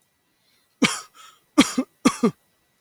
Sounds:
Cough